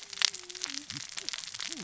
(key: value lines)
label: biophony, cascading saw
recorder: SoundTrap 600 or HydroMoth